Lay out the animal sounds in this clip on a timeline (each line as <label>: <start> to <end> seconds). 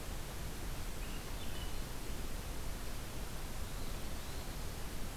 Swainson's Thrush (Catharus ustulatus): 0.9 to 2.0 seconds
Eastern Wood-Pewee (Contopus virens): 3.4 to 4.7 seconds